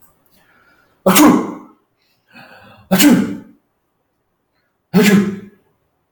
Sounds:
Sneeze